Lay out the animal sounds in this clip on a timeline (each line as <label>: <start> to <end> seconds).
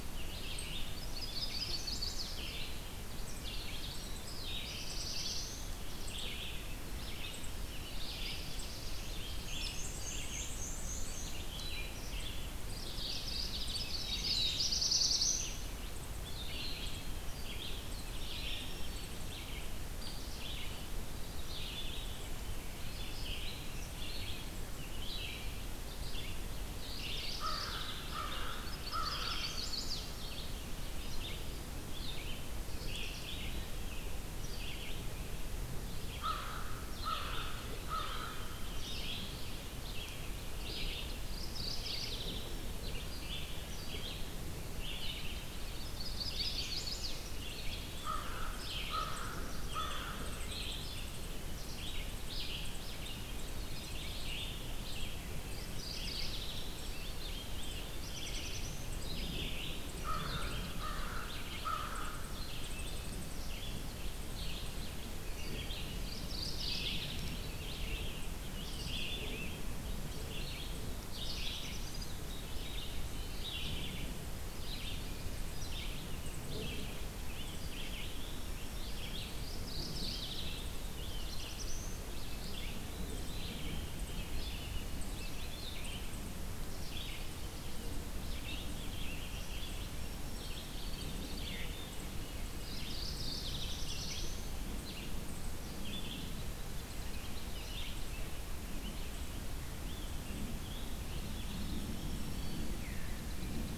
Red-eyed Vireo (Vireo olivaceus): 0.1 to 103.8 seconds
Chestnut-sided Warbler (Setophaga pensylvanica): 0.9 to 2.5 seconds
Black-throated Blue Warbler (Setophaga caerulescens): 3.9 to 5.7 seconds
Black-throated Blue Warbler (Setophaga caerulescens): 7.6 to 9.2 seconds
Black-and-white Warbler (Mniotilta varia): 9.2 to 11.5 seconds
Mourning Warbler (Geothlypis philadelphia): 12.6 to 13.9 seconds
Black-throated Blue Warbler (Setophaga caerulescens): 13.6 to 15.6 seconds
Chestnut-sided Warbler (Setophaga pensylvanica): 13.6 to 14.7 seconds
Black-throated Green Warbler (Setophaga virens): 18.0 to 19.5 seconds
Hairy Woodpecker (Dryobates villosus): 20.0 to 20.2 seconds
Veery (Catharus fuscescens): 21.5 to 22.9 seconds
Mourning Warbler (Geothlypis philadelphia): 26.7 to 28.2 seconds
American Crow (Corvus brachyrhynchos): 27.4 to 30.1 seconds
Chestnut-sided Warbler (Setophaga pensylvanica): 28.5 to 30.1 seconds
Mourning Warbler (Geothlypis philadelphia): 32.6 to 33.5 seconds
American Crow (Corvus brachyrhynchos): 36.2 to 38.4 seconds
Veery (Catharus fuscescens): 37.9 to 39.2 seconds
Mourning Warbler (Geothlypis philadelphia): 41.1 to 42.5 seconds
Chestnut-sided Warbler (Setophaga pensylvanica): 45.7 to 47.2 seconds
American Crow (Corvus brachyrhynchos): 47.9 to 50.6 seconds
Black-throated Blue Warbler (Setophaga caerulescens): 48.6 to 50.1 seconds
Veery (Catharus fuscescens): 53.3 to 54.8 seconds
Mourning Warbler (Geothlypis philadelphia): 55.4 to 56.9 seconds
Rose-breasted Grosbeak (Pheucticus ludovicianus): 56.6 to 58.7 seconds
Black-throated Blue Warbler (Setophaga caerulescens): 57.2 to 58.9 seconds
American Crow (Corvus brachyrhynchos): 59.9 to 62.4 seconds
Mourning Warbler (Geothlypis philadelphia): 65.9 to 67.3 seconds
Black-throated Green Warbler (Setophaga virens): 66.7 to 67.9 seconds
Rose-breasted Grosbeak (Pheucticus ludovicianus): 67.5 to 69.7 seconds
Black-throated Blue Warbler (Setophaga caerulescens): 70.9 to 73.6 seconds
Veery (Catharus fuscescens): 71.8 to 72.8 seconds
Rose-breasted Grosbeak (Pheucticus ludovicianus): 75.8 to 78.6 seconds
Black-throated Green Warbler (Setophaga virens): 78.3 to 79.5 seconds
Mourning Warbler (Geothlypis philadelphia): 79.3 to 80.6 seconds
Rose-breasted Grosbeak (Pheucticus ludovicianus): 80.1 to 81.6 seconds
Black-throated Blue Warbler (Setophaga caerulescens): 80.5 to 82.2 seconds
Veery (Catharus fuscescens): 82.9 to 84.6 seconds
Rose-breasted Grosbeak (Pheucticus ludovicianus): 88.0 to 90.1 seconds
Black-throated Green Warbler (Setophaga virens): 89.8 to 91.1 seconds
Veery (Catharus fuscescens): 90.8 to 92.1 seconds
Mourning Warbler (Geothlypis philadelphia): 92.5 to 93.8 seconds
Black-throated Blue Warbler (Setophaga caerulescens): 92.9 to 94.7 seconds
Veery (Catharus fuscescens): 101.1 to 102.6 seconds